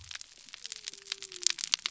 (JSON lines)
{"label": "biophony", "recorder": "SoundTrap 300"}